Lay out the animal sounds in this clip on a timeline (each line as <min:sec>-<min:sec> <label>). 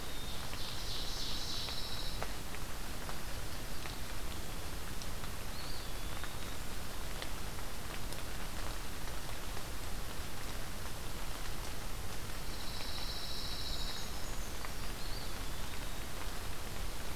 0:00.0-0:01.9 Ovenbird (Seiurus aurocapilla)
0:00.7-0:02.4 Pine Warbler (Setophaga pinus)
0:05.4-0:06.9 Eastern Wood-Pewee (Contopus virens)
0:12.3-0:14.1 Pine Warbler (Setophaga pinus)
0:13.6-0:15.0 Brown Creeper (Certhia americana)
0:14.8-0:16.2 Eastern Wood-Pewee (Contopus virens)